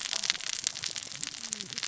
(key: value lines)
label: biophony, cascading saw
recorder: SoundTrap 600 or HydroMoth